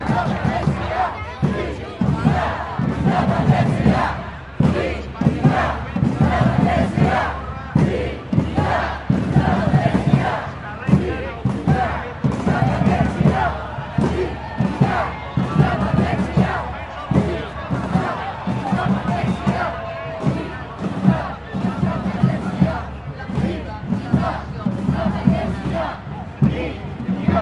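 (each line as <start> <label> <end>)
0.0 Drums playing repeatedly. 27.4
0.0 People chanting repeatedly. 27.4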